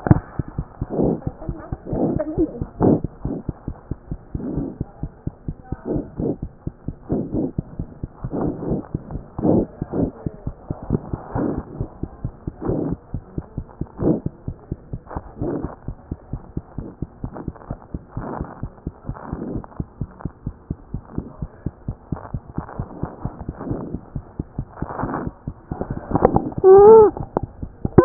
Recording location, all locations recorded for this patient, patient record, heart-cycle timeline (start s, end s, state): mitral valve (MV)
aortic valve (AV)+mitral valve (MV)
#Age: Child
#Sex: Female
#Height: 76.0 cm
#Weight: 9.1 kg
#Pregnancy status: False
#Murmur: Absent
#Murmur locations: nan
#Most audible location: nan
#Systolic murmur timing: nan
#Systolic murmur shape: nan
#Systolic murmur grading: nan
#Systolic murmur pitch: nan
#Systolic murmur quality: nan
#Diastolic murmur timing: nan
#Diastolic murmur shape: nan
#Diastolic murmur grading: nan
#Diastolic murmur pitch: nan
#Diastolic murmur quality: nan
#Outcome: Normal
#Campaign: 2014 screening campaign
0.00	19.91	unannotated
19.91	20.02	diastole
20.02	20.10	S1
20.10	20.24	systole
20.24	20.32	S2
20.32	20.46	diastole
20.46	20.56	S1
20.56	20.68	systole
20.68	20.78	S2
20.78	20.94	diastole
20.94	21.04	S1
21.04	21.16	systole
21.16	21.26	S2
21.26	21.42	diastole
21.42	21.52	S1
21.52	21.64	systole
21.64	21.74	S2
21.74	21.88	diastole
21.88	21.98	S1
21.98	22.10	systole
22.10	22.20	S2
22.20	22.34	diastole
22.34	22.44	S1
22.44	22.56	systole
22.56	22.66	S2
22.66	22.75	diastole
22.75	28.05	unannotated